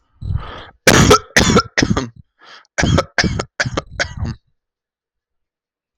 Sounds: Cough